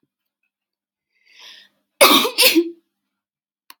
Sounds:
Sneeze